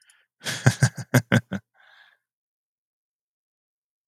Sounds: Laughter